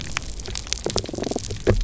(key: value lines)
label: biophony, damselfish
recorder: SoundTrap 300